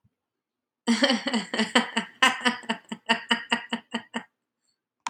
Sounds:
Laughter